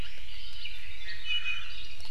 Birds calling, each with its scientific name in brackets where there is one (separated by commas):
Iiwi (Drepanis coccinea)